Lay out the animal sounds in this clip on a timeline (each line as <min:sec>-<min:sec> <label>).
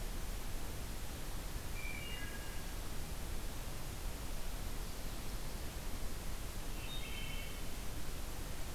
0:01.7-0:02.8 Wood Thrush (Hylocichla mustelina)
0:06.7-0:07.7 Wood Thrush (Hylocichla mustelina)